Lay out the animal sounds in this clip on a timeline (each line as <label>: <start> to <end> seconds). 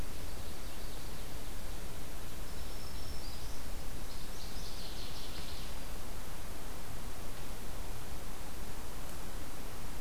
Common Yellowthroat (Geothlypis trichas): 0.0 to 1.6 seconds
Black-throated Green Warbler (Setophaga virens): 2.3 to 3.7 seconds
Northern Waterthrush (Parkesia noveboracensis): 3.8 to 5.9 seconds